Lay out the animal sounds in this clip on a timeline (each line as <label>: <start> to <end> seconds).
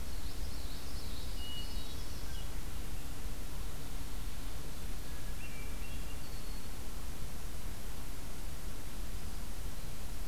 Common Yellowthroat (Geothlypis trichas): 0.0 to 1.5 seconds
Northern Parula (Setophaga americana): 1.1 to 2.5 seconds
Hermit Thrush (Catharus guttatus): 1.3 to 2.3 seconds
Hermit Thrush (Catharus guttatus): 5.0 to 6.2 seconds
Red-winged Blackbird (Agelaius phoeniceus): 6.2 to 6.8 seconds